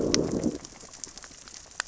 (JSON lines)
{"label": "biophony, growl", "recorder": "SoundTrap 600 or HydroMoth"}